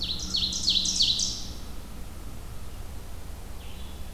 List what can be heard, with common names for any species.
Ovenbird, American Crow, Blue-headed Vireo